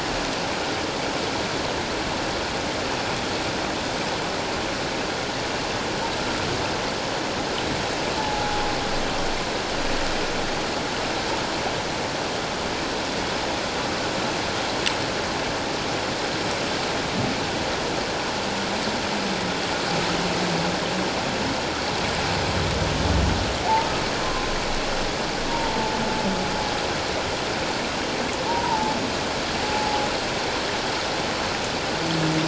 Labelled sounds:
8.2	8.6	humpback whale, 0.81 to 0.91 kHz
24.2	24.5	humpback whale, 1.0 to 1.2 kHz
25.5	25.9	humpback whale, 0.84 to 0.97 kHz
28.5	29.0	humpback whale, 0.81 to 1.0 kHz
29.6	30.0	humpback whale, 0.78 to 0.88 kHz

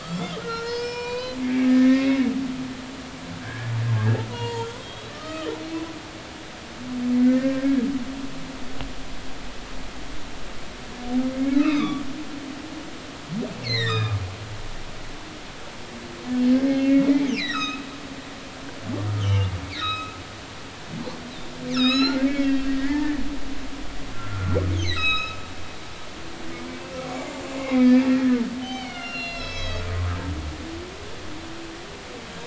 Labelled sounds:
0.0	2.3	humpback whale, 0.93 to 5.7 kHz
3.3	5.5	humpback whale, 0.83 to 6.6 kHz
7.1	7.8	humpback whale, 1.5 to 2.1 kHz
11.6	12.0	humpback whale, 0.99 to 4.0 kHz
13.6	14.2	humpback whale, 1.1 to 5.2 kHz
16.7	17.9	humpback whale, 1.1 to 5.9 kHz
19.2	20.2	humpback whale, 1.2 to 6.5 kHz
21.7	23.2	humpback whale, 1.2 to 7.1 kHz
24.1	25.4	humpback whale, 1.2 to 7.9 kHz
27.6	29.9	humpback whale, 1.3 to 6.7 kHz

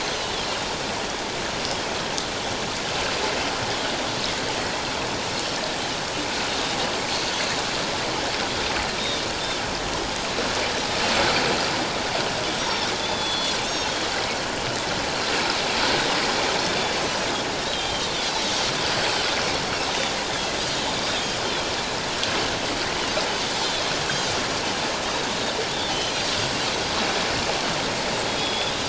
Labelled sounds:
9.0	9.2	Pacific white-sided dolphin, 3.4 to 3.8 kHz
12.6	13.9	Pacific white-sided dolphin, 3.3 to 6.6 kHz
17.0	17.2	Pacific white-sided dolphin, 5.8 to 6.1 kHz
17.6	18.5	Pacific white-sided dolphin, 3.1 to 4.2 kHz
20.2	20.5	Pacific white-sided dolphin, 3.1 to 3.8 kHz
21.1	21.4	Pacific white-sided dolphin, 3.1 to 3.3 kHz
23.6	23.9	Pacific white-sided dolphin, 3.2 to 3.7 kHz
25.9	26.1	Pacific white-sided dolphin, 3.0 to 3.2 kHz

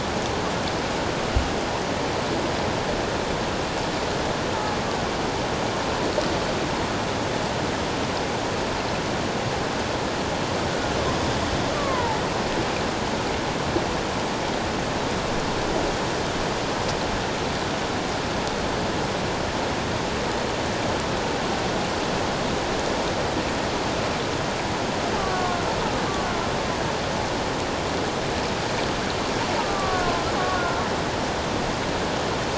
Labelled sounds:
11.7	12.2	killer whale, Bigg's (transient), 0.81 to 1.3 kHz
25.2	25.6	killer whale, Bigg's (transient), 1.0 to 1.2 kHz
29.6	30.8	killer whale, Bigg's (transient), 1.0 to 1.5 kHz

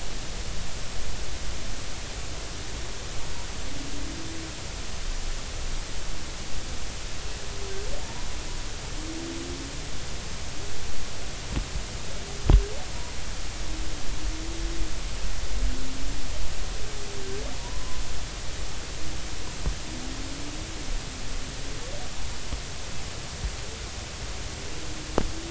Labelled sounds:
17.6	18.0	humpback whale, 0.90 to 1.1 kHz

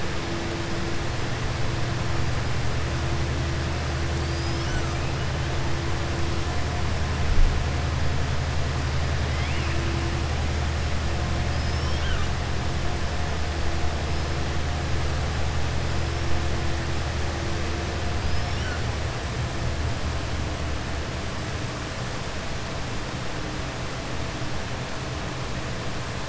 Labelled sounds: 18.2	18.7	killer whale, southern resident, 4.7 to 5.8 kHz

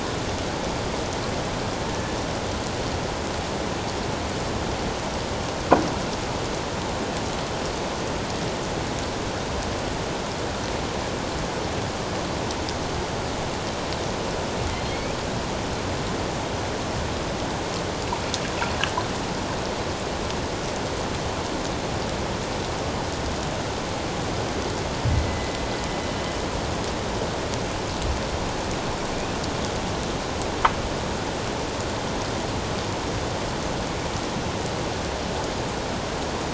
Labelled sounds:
1.9	2.2	killer whale, northern resident, 1.7 to 1.8 kHz
14.9	15.2	killer whale, northern resident, 2.1 to 2.6 kHz
25.1	25.5	killer whale, northern resident, 2.0 to 2.1 kHz

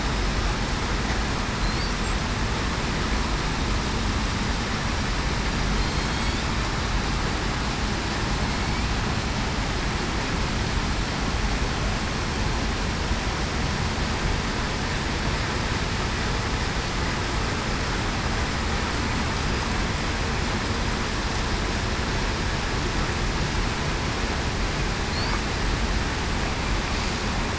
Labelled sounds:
6.0	6.4	killer whale, southern resident, 3.2 to 3.6 kHz

